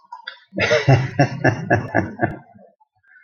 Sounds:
Laughter